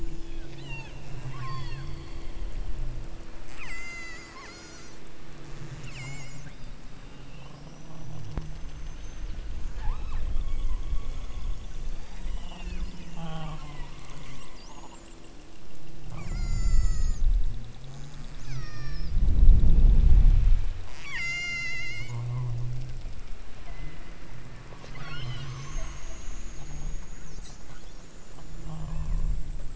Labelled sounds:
0.0	1.9	killer whale, southern Alaska resident, 0.68 to 7.6 kHz
3.5	5.0	killer whale, southern Alaska resident, 0.91 to 8.0 kHz
5.4	6.8	killer whale, southern Alaska resident, 1.8 to 8.0 kHz
9.7	10.9	killer whale, southern Alaska resident, 0.71 to 8.0 kHz
11.8	12.9	killer whale, southern Alaska resident, 1.4 to 8.0 kHz
13.5	14.0	killer whale, southern Alaska resident, 0.73 to 2.6 kHz
16.0	17.3	killer whale, southern Alaska resident, 0.46 to 8.0 kHz
17.9	19.2	killer whale, southern Alaska resident, 0.57 to 8.0 kHz
20.8	22.3	killer whale, southern Alaska resident, 0.50 to 8.0 kHz
23.5	24.2	killer whale, southern Alaska resident, 0.59 to 2.7 kHz
24.9	25.5	killer whale, southern Alaska resident, 0.78 to 6.1 kHz
28.6	29.3	killer whale, southern Alaska resident, 0.43 to 3.3 kHz

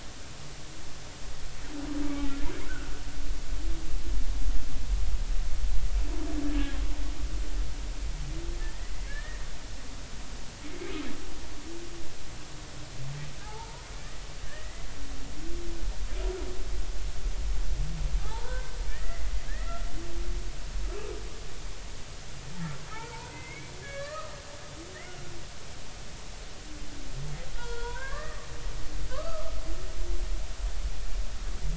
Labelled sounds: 8.6	9.4	humpback whale, 1.6 to 2.0 kHz
9.9	10.2	humpback whale, 1.9 to 2.3 kHz
13.4	14.9	humpback whale, 0.80 to 2.1 kHz
18.2	19.9	humpback whale, 0.80 to 2.1 kHz
22.9	24.3	humpback whale, 1.1 to 2.4 kHz
27.6	29.5	humpback whale, 0.90 to 3.5 kHz

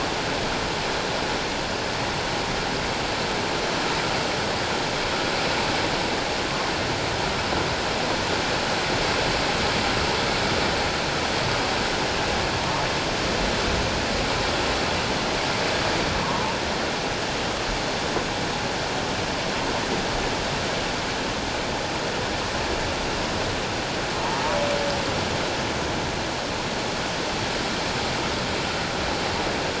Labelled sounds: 16.2	16.5	humpback whale, 0.88 to 1.2 kHz

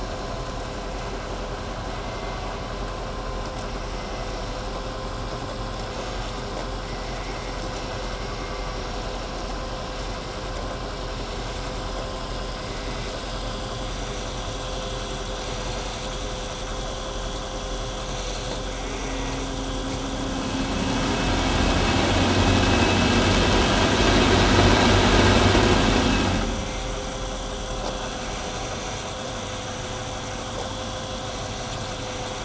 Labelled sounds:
18.7	19.5	vessel noise, 1.4 to 3.0 kHz

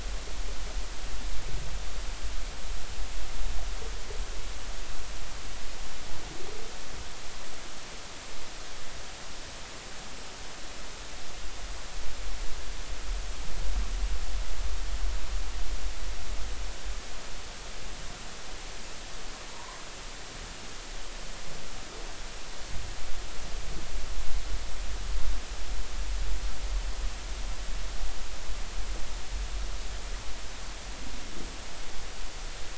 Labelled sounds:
19.5	19.8	humpback whale, 0.86 to 1.2 kHz

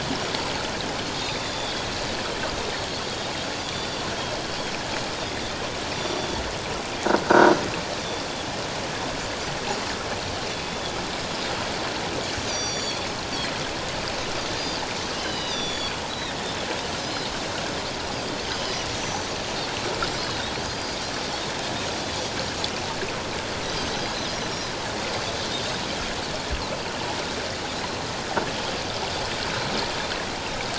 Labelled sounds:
1.2	1.9	Pacific white-sided dolphin, 3.3 to 3.9 kHz
3.6	4.0	Pacific white-sided dolphin, 3.3 to 4.8 kHz
5.9	6.3	Pacific white-sided dolphin, 5.7 to 5.8 kHz
7.2	7.5	croaking sound likely from a nearby submerged object, 1.3 to 1.7 kHz
10.7	10.9	Pacific white-sided dolphin, 3.3 to 3.5 kHz
12.3	13.1	Pacific white-sided dolphin, 3.3 to 8.0 kHz
15.2	17.3	Pacific white-sided dolphin, 2.7 to 6.9 kHz
19.0	19.3	Pacific white-sided dolphin, 5.7 to 6.0 kHz
20.1	21.0	Pacific white-sided dolphin, 4.7 to 5.1 kHz

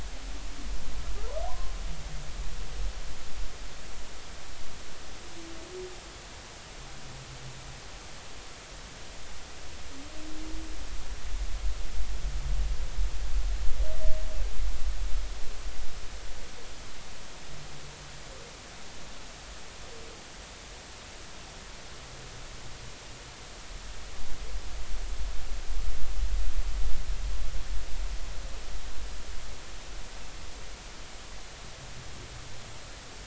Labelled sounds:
1.5	1.7	humpback whale, 0.90 to 1.1 kHz

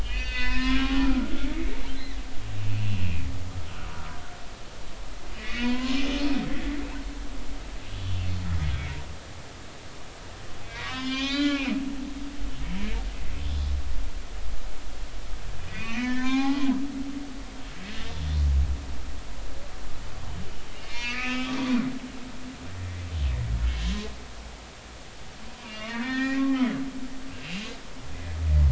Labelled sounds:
0.0	1.7	humpback whale, 0.96 to 5.2 kHz
2.7	3.2	humpback whale, 2.3 to 2.8 kHz
5.3	6.0	humpback whale, 0.93 to 4.0 kHz
8.7	9.0	humpback whale, 2.1 to 2.4 kHz
10.6	11.8	humpback whale, 0.99 to 5.3 kHz
15.7	16.6	humpback whale, 0.80 to 4.3 kHz
18.0	18.2	humpback whale, 3.5 to 3.6 kHz
20.9	21.8	humpback whale, 1.2 to 4.9 kHz
25.6	27.0	humpback whale, 0.90 to 3.5 kHz
27.3	27.7	humpback whale, 2.7 to 2.8 kHz

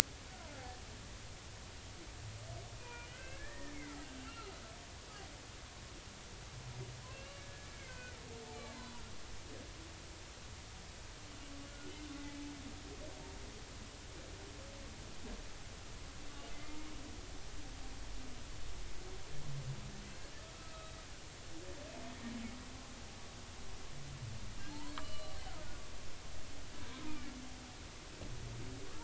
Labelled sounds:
2.8	3.8	humpback whale, 0.90 to 2.8 kHz
4.2	4.5	humpback whale, 1.2 to 1.5 kHz
7.1	8.2	humpback whale, 1.4 to 2.9 kHz
11.7	12.0	humpback whale, 1.4 to 1.5 kHz
16.5	16.8	humpback whale, 2.0 to 2.1 kHz
20.5	21.0	humpback whale, 1.2 to 3.9 kHz
25.0	26.3	humpback whale, 0.93 to 4.2 kHz
27.1	27.3	humpback whale, 2.2 to 2.5 kHz

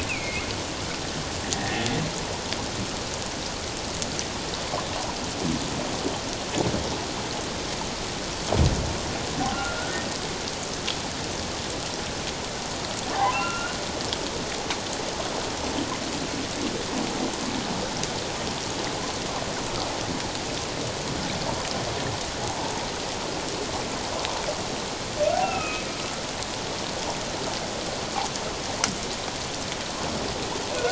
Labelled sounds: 0.1	0.5	humpback whale, 2.1 to 2.8 kHz
1.5	1.9	humpback whale, 1.7 to 1.9 kHz
9.5	10.0	humpback whale, 1.3 to 1.6 kHz
13.2	13.8	humpback whale, 0.78 to 2.9 kHz
25.4	25.9	humpback whale, 1.2 to 2.8 kHz

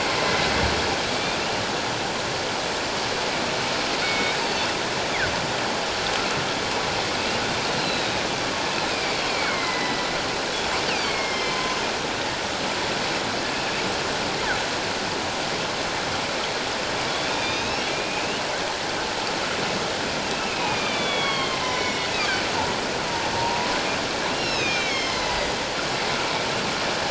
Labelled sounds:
1.1	1.3	killer whale, northern resident, 1.1 to 1.3 kHz
4.0	5.1	killer whale, northern resident, 2.2 to 8.0 kHz
7.8	10.0	killer whale, northern resident, 1.9 to 4.9 kHz
10.9	11.8	killer whale, northern resident, 0.97 to 5.4 kHz
13.9	14.4	killer whale, northern resident, 7.5 to 8.0 kHz
17.3	18.4	killer whale, northern resident, 2.3 to 6.7 kHz
20.3	22.4	killer whale, northern resident, 1.0 to 5.7 kHz
23.4	23.7	killer whale, northern resident, 0.88 to 1.0 kHz
24.3	25.5	killer whale, northern resident, 2.0 to 6.5 kHz

